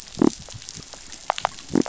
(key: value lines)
label: biophony
recorder: SoundTrap 500